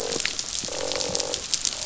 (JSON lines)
{"label": "biophony, croak", "recorder": "SoundTrap 500"}